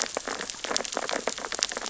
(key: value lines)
label: biophony, sea urchins (Echinidae)
recorder: SoundTrap 600 or HydroMoth